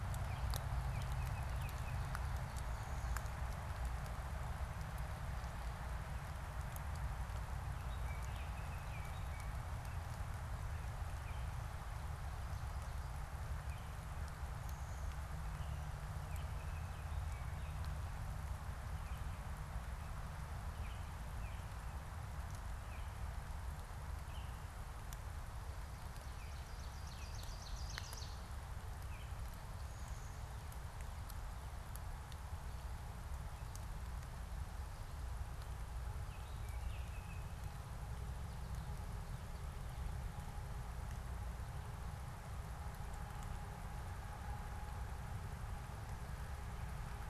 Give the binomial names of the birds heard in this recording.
Icterus galbula, Seiurus aurocapilla